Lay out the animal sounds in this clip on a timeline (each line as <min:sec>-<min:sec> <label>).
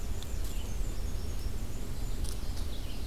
0:00.0-0:02.1 Black-and-white Warbler (Mniotilta varia)
0:00.0-0:03.1 Red-eyed Vireo (Vireo olivaceus)